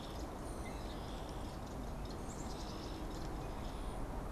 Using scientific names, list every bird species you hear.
Poecile atricapillus, unidentified bird